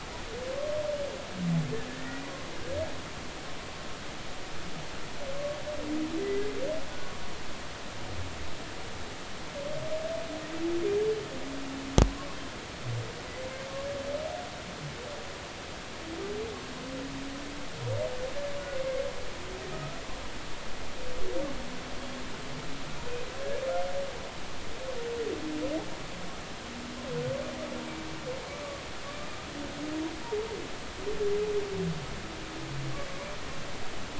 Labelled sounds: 1.9	2.2	humpback whale, 1.7 to 2.0 kHz

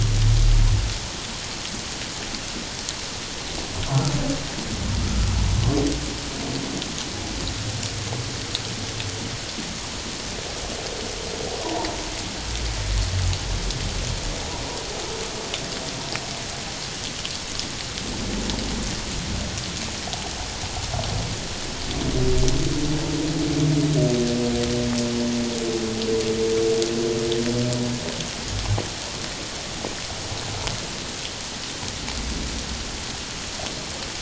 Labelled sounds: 11.6	11.9	humpback whale, 0.84 to 1.0 kHz

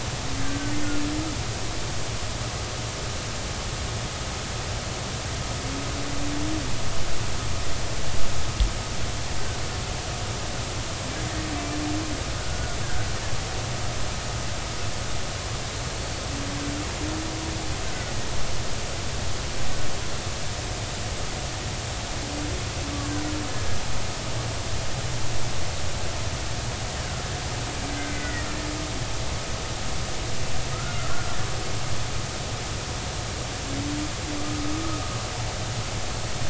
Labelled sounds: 12.4	12.8	killer whale, Bigg's (transient), 1.4 to 1.5 kHz
15.9	16.2	killer whale, Bigg's (transient), 4.3 to 4.5 kHz
27.9	28.5	killer whale, Bigg's (transient), 1.8 to 2.1 kHz
30.7	31.4	killer whale, Bigg's (transient), 1.2 to 1.5 kHz

